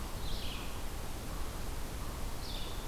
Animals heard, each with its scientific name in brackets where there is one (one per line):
Eastern Chipmunk (Tamias striatus)
Red-eyed Vireo (Vireo olivaceus)